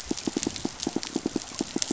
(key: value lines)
label: biophony, pulse
recorder: SoundTrap 500